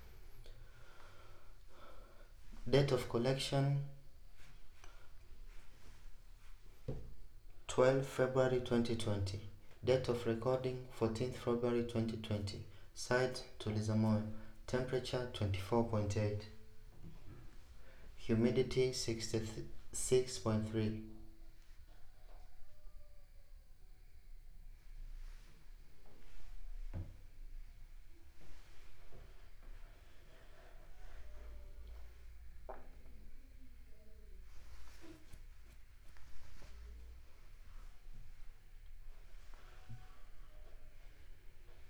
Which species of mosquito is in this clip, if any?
no mosquito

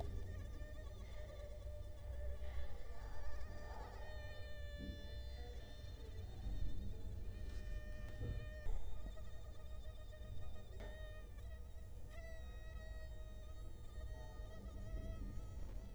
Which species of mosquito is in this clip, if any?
Culex quinquefasciatus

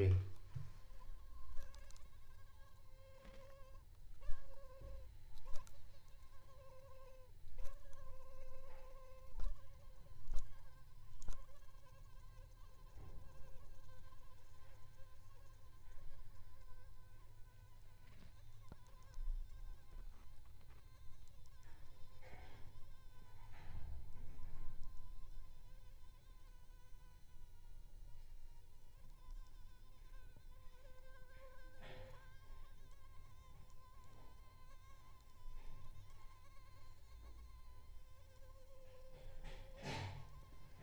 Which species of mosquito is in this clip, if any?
Anopheles arabiensis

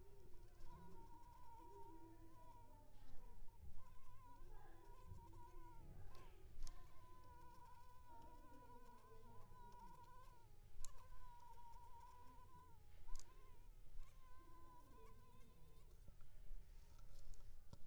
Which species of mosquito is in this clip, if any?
Culex pipiens complex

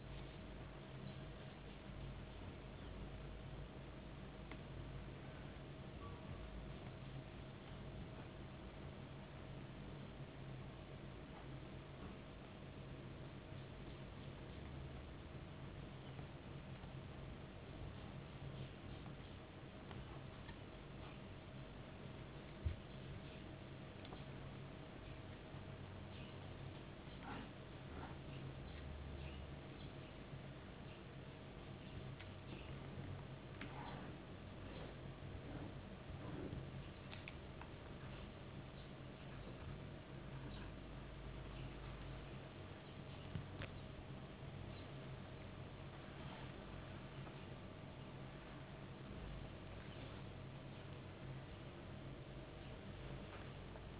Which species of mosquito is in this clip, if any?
no mosquito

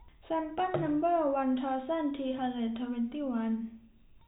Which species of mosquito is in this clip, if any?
no mosquito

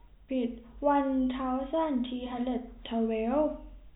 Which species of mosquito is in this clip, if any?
no mosquito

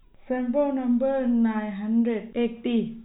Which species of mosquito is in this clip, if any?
no mosquito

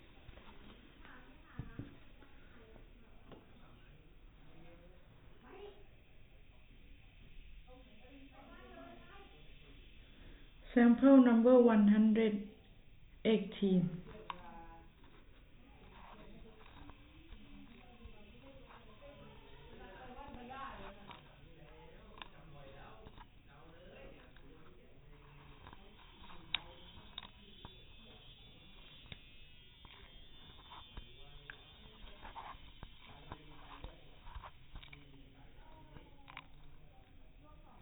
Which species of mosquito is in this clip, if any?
no mosquito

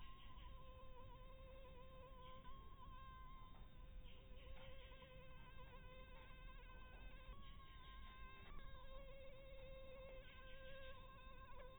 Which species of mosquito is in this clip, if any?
Anopheles harrisoni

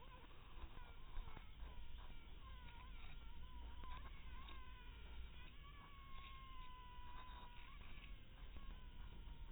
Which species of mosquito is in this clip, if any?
mosquito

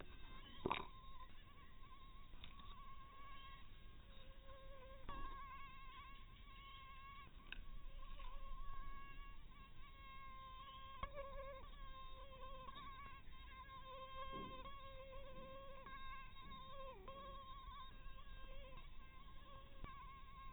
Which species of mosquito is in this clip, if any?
mosquito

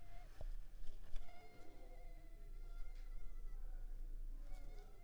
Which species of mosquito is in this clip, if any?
Culex pipiens complex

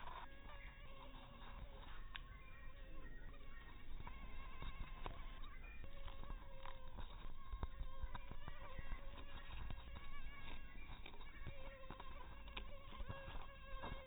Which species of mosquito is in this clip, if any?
mosquito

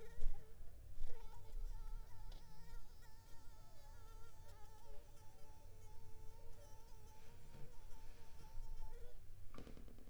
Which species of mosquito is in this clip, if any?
mosquito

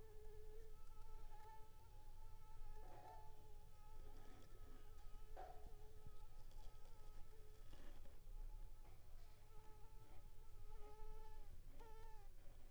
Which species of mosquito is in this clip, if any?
Anopheles squamosus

